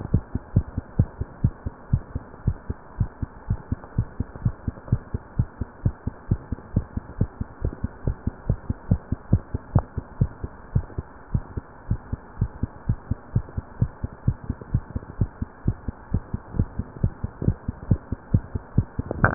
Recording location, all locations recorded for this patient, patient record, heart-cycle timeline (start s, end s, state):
mitral valve (MV)
aortic valve (AV)+pulmonary valve (PV)+tricuspid valve (TV)+mitral valve (MV)
#Age: Adolescent
#Sex: Female
#Height: 160.0 cm
#Weight: 46.7 kg
#Pregnancy status: False
#Murmur: Absent
#Murmur locations: nan
#Most audible location: nan
#Systolic murmur timing: nan
#Systolic murmur shape: nan
#Systolic murmur grading: nan
#Systolic murmur pitch: nan
#Systolic murmur quality: nan
#Diastolic murmur timing: nan
#Diastolic murmur shape: nan
#Diastolic murmur grading: nan
#Diastolic murmur pitch: nan
#Diastolic murmur quality: nan
#Outcome: Normal
#Campaign: 2015 screening campaign
0.00	0.40	unannotated
0.40	0.54	diastole
0.54	0.66	S1
0.66	0.76	systole
0.76	0.84	S2
0.84	0.98	diastole
0.98	1.10	S1
1.10	1.19	systole
1.19	1.28	S2
1.28	1.44	diastole
1.44	1.54	S1
1.54	1.63	systole
1.63	1.74	S2
1.74	1.92	diastole
1.92	2.02	S1
2.02	2.13	systole
2.13	2.22	S2
2.22	2.46	diastole
2.46	2.56	S1
2.56	2.68	systole
2.68	2.78	S2
2.78	2.98	diastole
2.98	3.10	S1
3.10	3.21	systole
3.21	3.30	S2
3.30	3.50	diastole
3.50	3.60	S1
3.60	3.69	systole
3.69	3.80	S2
3.80	3.96	diastole
3.96	4.08	S1
4.08	4.20	systole
4.20	4.28	S2
4.28	4.46	diastole
4.46	4.54	S1
4.54	4.68	systole
4.68	4.76	S2
4.76	4.92	diastole
4.92	5.02	S1
5.02	5.14	systole
5.14	5.22	S2
5.22	5.38	diastole
5.38	5.46	S1
5.46	5.59	systole
5.59	5.68	S2
5.68	5.84	diastole
5.84	5.96	S1
5.96	6.06	systole
6.06	6.14	S2
6.14	6.30	diastole
6.30	6.40	S1
6.40	6.52	systole
6.52	6.60	S2
6.60	6.74	diastole
6.74	6.86	S1
6.86	6.95	systole
6.95	7.04	S2
7.04	7.20	diastole
7.20	7.30	S1
7.30	7.39	systole
7.39	7.48	S2
7.48	7.61	diastole
7.61	7.74	S1
7.74	7.82	systole
7.82	7.92	S2
7.92	8.06	diastole
8.06	8.16	S1
8.16	8.25	systole
8.25	8.34	S2
8.34	8.48	diastole
8.48	8.58	S1
8.58	8.68	systole
8.68	8.78	S2
8.78	8.90	diastole
8.90	9.00	S1
9.00	9.10	systole
9.10	9.20	S2
9.20	9.32	diastole
9.32	9.42	S1
9.42	9.53	systole
9.53	9.62	S2
9.62	9.74	diastole
9.74	9.85	S1
9.85	9.95	systole
9.95	10.06	S2
10.06	10.20	diastole
10.20	10.30	S1
10.30	10.42	systole
10.42	10.52	S2
10.52	10.74	diastole
10.74	10.86	S1
10.86	10.97	systole
10.97	11.08	S2
11.08	11.32	diastole
11.32	11.44	S1
11.44	11.56	systole
11.56	11.66	S2
11.66	11.86	diastole
11.86	12.00	S1
12.00	12.11	systole
12.11	12.20	S2
12.20	12.40	diastole
12.40	12.52	S1
12.52	12.61	systole
12.61	12.70	S2
12.70	12.88	diastole
12.88	12.98	S1
12.98	13.09	systole
13.09	13.18	S2
13.18	13.33	diastole
13.33	13.46	S1
13.46	13.54	systole
13.54	13.64	S2
13.64	13.80	diastole
13.80	13.92	S1
13.92	14.02	systole
14.02	14.12	S2
14.12	14.26	diastole
14.26	14.38	S1
14.38	14.48	systole
14.48	14.58	S2
14.58	14.72	diastole
14.72	14.84	S1
14.84	14.93	systole
14.93	15.04	S2
15.04	15.19	diastole
15.19	15.30	S1
15.30	15.40	systole
15.40	15.50	S2
15.50	15.66	diastole
15.66	15.78	S1
15.78	15.87	systole
15.87	15.96	S2
15.96	16.12	diastole
16.12	16.22	S1
16.22	16.31	systole
16.31	16.42	S2
16.42	16.56	diastole
16.56	16.68	S1
16.68	16.77	systole
16.77	16.88	S2
16.88	17.02	diastole
17.02	17.14	S1
17.14	17.23	systole
17.23	17.32	S2
17.32	17.44	diastole
17.44	17.56	S1
17.56	17.67	systole
17.67	17.76	S2
17.76	17.91	diastole
17.91	19.34	unannotated